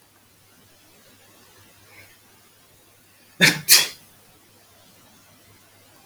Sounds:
Sneeze